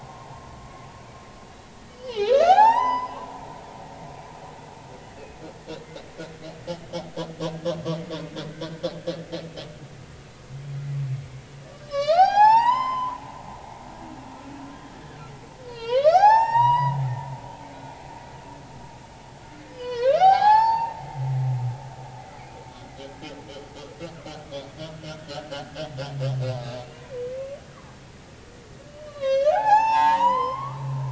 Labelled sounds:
1.9	3.4	humpback whale, 0.80 to 6.1 kHz
7.4	7.7	humpback whale, 1.4 to 1.7 kHz
11.7	13.2	humpback whale, 0.80 to 7.3 kHz
15.6	17.0	humpback whale, 0.80 to 7.8 kHz
19.7	22.4	humpback whale, 0.80 to 7.3 kHz
25.2	25.5	humpback whale, 1.2 to 1.6 kHz
26.9	27.2	humpback whale, 2.2 to 2.5 kHz
28.9	30.8	humpback whale, 0.80 to 6.3 kHz

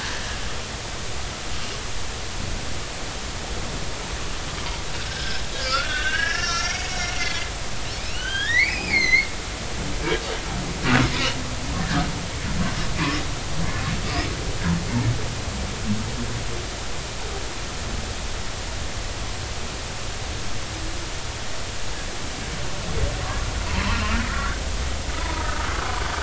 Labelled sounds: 0.1	0.4	humpback whale, 1.6 to 1.9 kHz
5.1	7.5	humpback whale, 1.2 to 5.8 kHz
8.0	9.3	humpback whale, 1.4 to 6.6 kHz
11.8	12.1	humpback whale, 1.4 to 1.9 kHz
23.7	26.0	humpback whale, 0.86 to 1.6 kHz

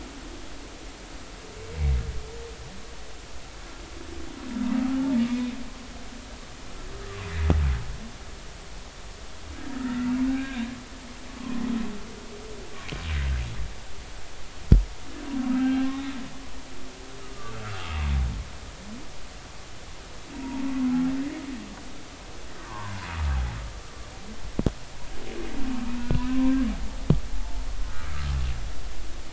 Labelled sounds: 5.3	5.6	humpback whale, 2.3 to 2.6 kHz
9.8	10.6	humpback whale, 1.2 to 2.6 kHz
11.4	11.6	humpback whale, 0.96 to 1.2 kHz
15.6	16.1	humpback whale, 1.5 to 2.9 kHz
17.5	17.9	humpback whale, 1.2 to 1.5 kHz
20.3	20.9	humpback whale, 0.83 to 1.2 kHz
22.6	23.0	humpback whale, 0.83 to 1.6 kHz
26.0	26.6	humpback whale, 0.90 to 2.8 kHz
27.3	27.6	humpback whale, 0.83 to 0.93 kHz

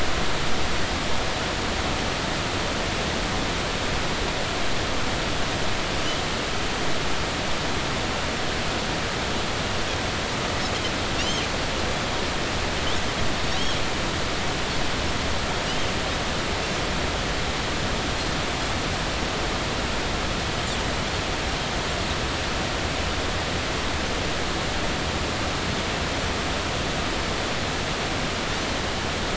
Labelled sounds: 11.2	11.5	Pacific white-sided dolphin, 2.7 to 6.5 kHz

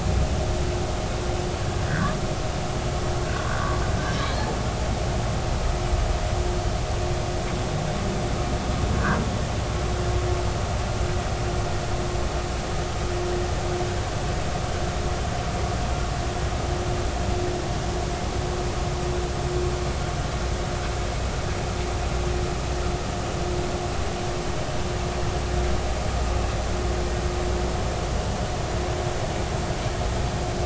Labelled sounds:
1.9	2.1	humpback whale, 1.4 to 2.0 kHz

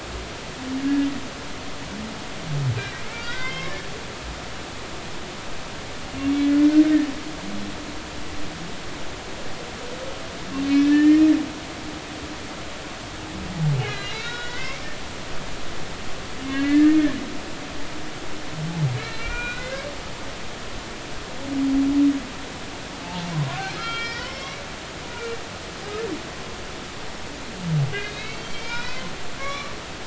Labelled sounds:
0.8	1.1	humpback whale, 1.6 to 1.7 kHz
3.1	3.8	humpback whale, 1.4 to 3.3 kHz
6.2	6.5	humpback whale, 2.1 to 2.3 kHz
10.6	11.3	humpback whale, 1.7 to 3.1 kHz
13.8	14.8	humpback whale, 1.3 to 4.3 kHz
16.4	18.0	humpback whale, 1.6 to 4.4 kHz
19.0	19.8	humpback whale, 1.3 to 4.2 kHz
23.0	24.6	humpback whale, 0.83 to 5.5 kHz
28.0	29.1	humpback whale, 0.90 to 5.5 kHz
29.4	29.7	humpback whale, 1.0 to 4.1 kHz

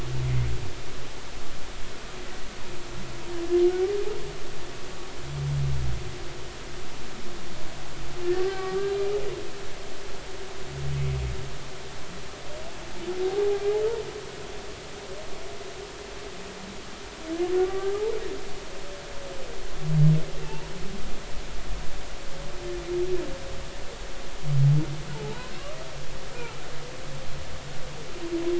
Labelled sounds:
0.2	0.5	humpback whale, 2.0 to 2.2 kHz
8.5	9.1	humpback whale, 1.1 to 4.0 kHz
17.6	18.2	humpback whale, 0.80 to 1.2 kHz
20.4	20.7	humpback whale, 0.83 to 2.8 kHz
25.1	25.5	humpback whale, 0.80 to 1.1 kHz

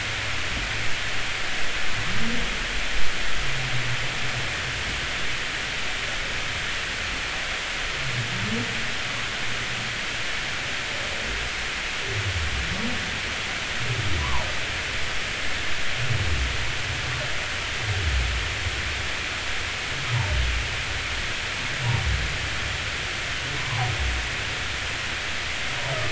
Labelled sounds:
14.2	14.5	humpback whale, 0.83 to 1.2 kHz
23.6	23.9	humpback whale, 0.80 to 1.2 kHz

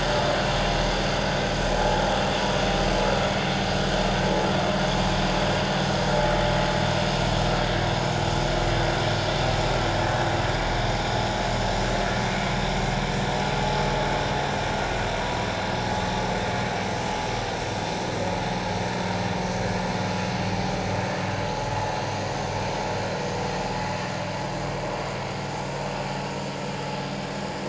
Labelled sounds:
1.8	2.0	vessel noise, 0.81 to 0.91 kHz
12.3	12.6	vessel noise, 2.1 to 2.3 kHz
15.2	15.5	vessel noise, 0.94 to 1.0 kHz

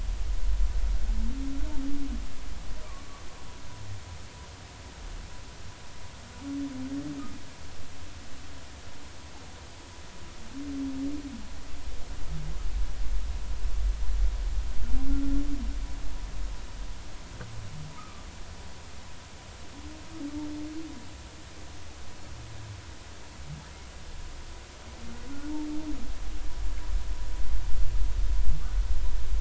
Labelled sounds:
2.9	3.2	humpback whale, 1.0 to 1.2 kHz
18.0	18.2	humpback whale, 1.1 to 1.3 kHz

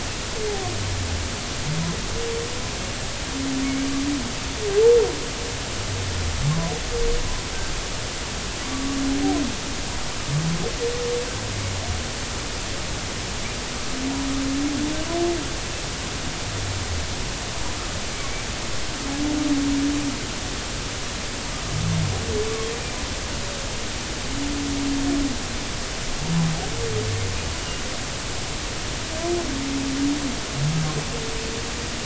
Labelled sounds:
8.6	8.9	humpback whale, 1.1 to 1.2 kHz

